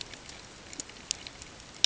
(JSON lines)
{"label": "ambient", "recorder": "HydroMoth"}